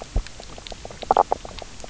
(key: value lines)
label: biophony, knock croak
recorder: SoundTrap 300